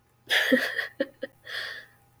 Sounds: Laughter